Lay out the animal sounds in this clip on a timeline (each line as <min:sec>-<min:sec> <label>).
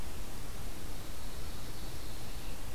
0:00.8-0:02.6 Ovenbird (Seiurus aurocapilla)